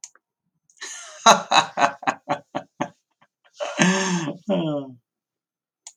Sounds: Laughter